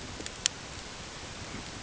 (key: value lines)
label: ambient
recorder: HydroMoth